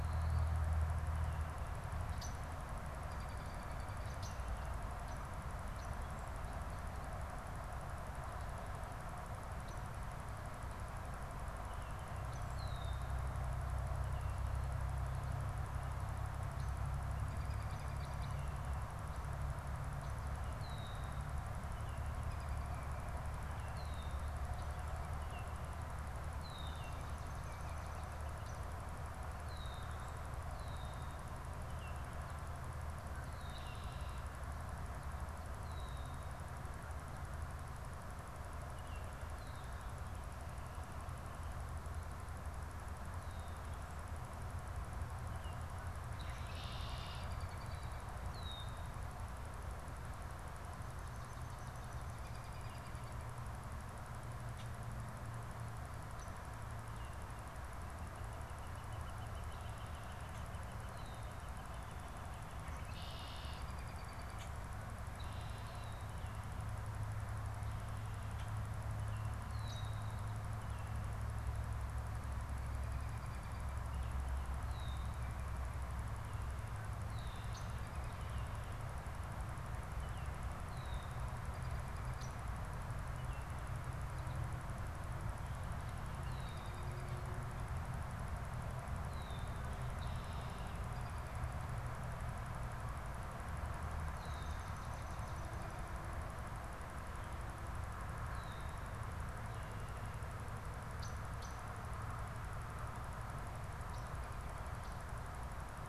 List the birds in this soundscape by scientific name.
Agelaius phoeniceus, Turdus migratorius, Melospiza georgiana, Colaptes auratus